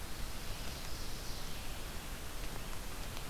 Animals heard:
Ovenbird (Seiurus aurocapilla)
Red-eyed Vireo (Vireo olivaceus)

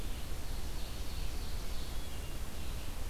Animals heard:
Hermit Thrush (Catharus guttatus)
Ovenbird (Seiurus aurocapilla)
Red-eyed Vireo (Vireo olivaceus)
Blue-headed Vireo (Vireo solitarius)

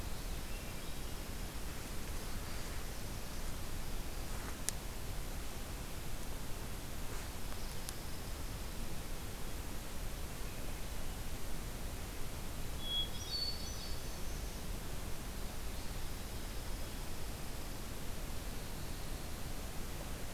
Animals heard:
Pine Warbler (Setophaga pinus)
Black-throated Blue Warbler (Setophaga caerulescens)
Hermit Thrush (Catharus guttatus)

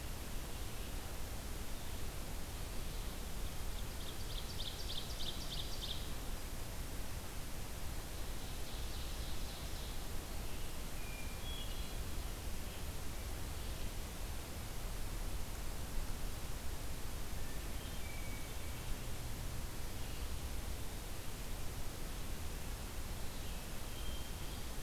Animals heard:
Ovenbird (Seiurus aurocapilla)
Hermit Thrush (Catharus guttatus)

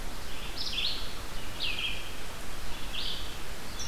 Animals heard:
Red-eyed Vireo (Vireo olivaceus)

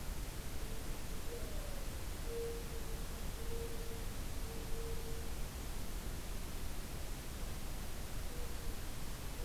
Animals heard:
Mourning Dove (Zenaida macroura)

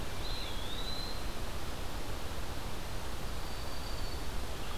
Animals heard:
Eastern Wood-Pewee (Contopus virens)

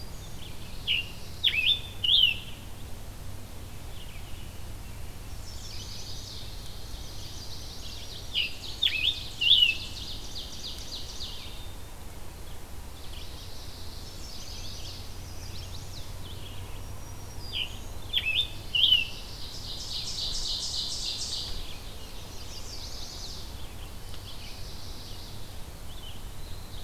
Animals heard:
Black-capped Chickadee (Poecile atricapillus)
Ovenbird (Seiurus aurocapilla)
Black-throated Green Warbler (Setophaga virens)
Mourning Warbler (Geothlypis philadelphia)
Chestnut-sided Warbler (Setophaga pensylvanica)
Eastern Wood-Pewee (Contopus virens)
American Robin (Turdus migratorius)
Red-eyed Vireo (Vireo olivaceus)
Scarlet Tanager (Piranga olivacea)

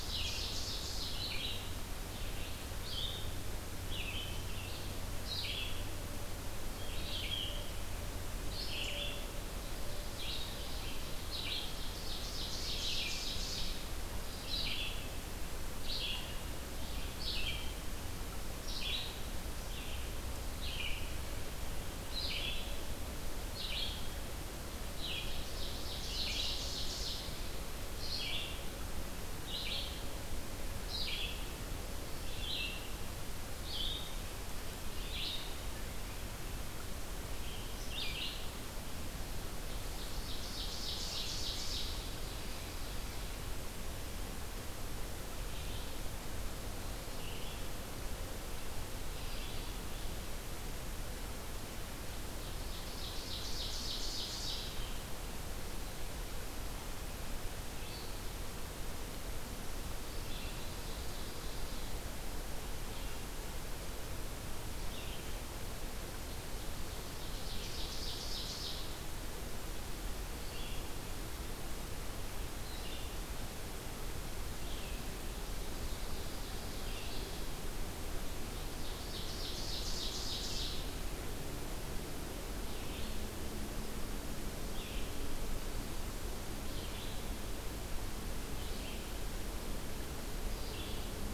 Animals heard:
Red-eyed Vireo (Vireo olivaceus)
Ovenbird (Seiurus aurocapilla)

